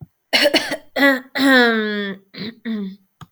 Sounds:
Throat clearing